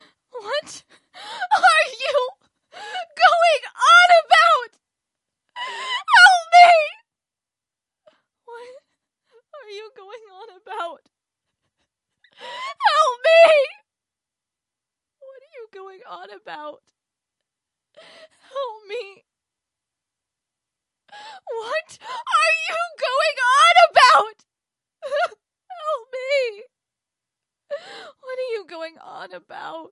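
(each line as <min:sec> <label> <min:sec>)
0:00.3 A woman screams desperately. 0:04.8
0:05.5 A woman screams desperately. 0:07.1
0:08.0 A woman whispers desperately. 0:11.0
0:12.3 A woman screams desperately. 0:13.9
0:15.1 A woman whispers desperately. 0:16.9
0:17.9 A woman whispers desperately. 0:19.3
0:21.1 A woman screams desperately, gradually increasing in intensity. 0:24.4
0:25.0 A woman whispers desperately and tearfully. 0:26.7
0:27.7 A woman whispers desperately and tearfully. 0:29.9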